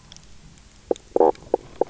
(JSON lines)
{"label": "biophony, knock croak", "recorder": "SoundTrap 300"}